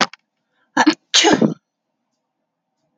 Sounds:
Sneeze